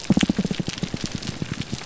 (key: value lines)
label: biophony, grouper groan
recorder: SoundTrap 300